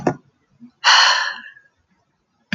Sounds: Sigh